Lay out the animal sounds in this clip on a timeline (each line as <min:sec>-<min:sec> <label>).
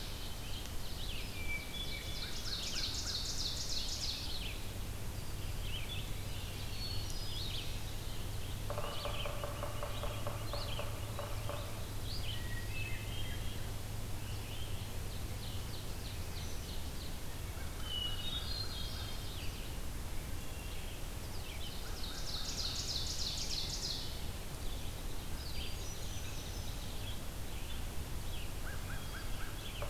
0:00.0-0:29.9 Red-eyed Vireo (Vireo olivaceus)
0:01.2-0:02.4 Hermit Thrush (Catharus guttatus)
0:01.7-0:04.3 Ovenbird (Seiurus aurocapilla)
0:02.1-0:03.2 American Crow (Corvus brachyrhynchos)
0:06.6-0:07.6 Hermit Thrush (Catharus guttatus)
0:08.6-0:11.6 Yellow-bellied Sapsucker (Sphyrapicus varius)
0:12.3-0:13.8 Hermit Thrush (Catharus guttatus)
0:15.1-0:17.0 Ovenbird (Seiurus aurocapilla)
0:17.4-0:19.2 American Crow (Corvus brachyrhynchos)
0:17.7-0:19.2 Hermit Thrush (Catharus guttatus)
0:21.4-0:24.2 Ovenbird (Seiurus aurocapilla)
0:21.7-0:22.7 American Crow (Corvus brachyrhynchos)
0:25.5-0:26.5 Hermit Thrush (Catharus guttatus)
0:28.6-0:29.6 American Crow (Corvus brachyrhynchos)